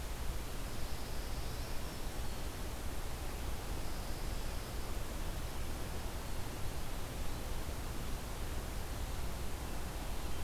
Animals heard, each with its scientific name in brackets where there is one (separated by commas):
Eastern Wood-Pewee (Contopus virens), Pine Warbler (Setophaga pinus)